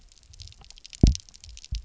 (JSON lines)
{"label": "biophony, double pulse", "recorder": "SoundTrap 300"}